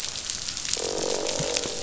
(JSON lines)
{"label": "biophony, croak", "recorder": "SoundTrap 500"}